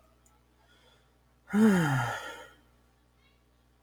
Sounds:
Sigh